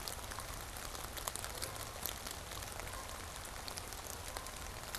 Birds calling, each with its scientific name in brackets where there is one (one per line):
Canada Goose (Branta canadensis)